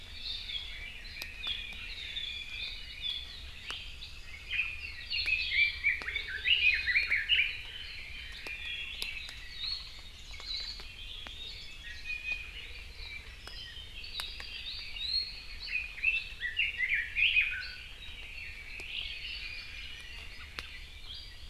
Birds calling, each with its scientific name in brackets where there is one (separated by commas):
Apapane (Himatione sanguinea), Hawaii Akepa (Loxops coccineus), Iiwi (Drepanis coccinea), Red-billed Leiothrix (Leiothrix lutea)